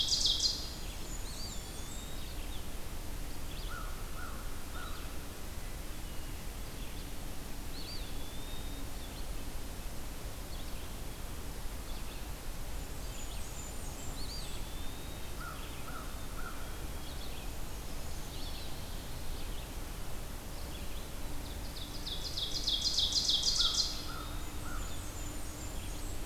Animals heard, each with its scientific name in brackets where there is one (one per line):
American Crow (Corvus brachyrhynchos)
Blackburnian Warbler (Setophaga fusca)
Brown Creeper (Certhia americana)
Ovenbird (Seiurus aurocapilla)
Black-capped Chickadee (Poecile atricapillus)
Red-eyed Vireo (Vireo olivaceus)
Eastern Wood-Pewee (Contopus virens)